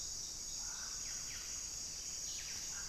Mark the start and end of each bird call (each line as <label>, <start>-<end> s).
Buff-breasted Wren (Cantorchilus leucotis), 0.0-2.9 s